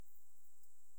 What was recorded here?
Pholidoptera griseoaptera, an orthopteran